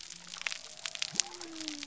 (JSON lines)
{"label": "biophony", "recorder": "SoundTrap 300"}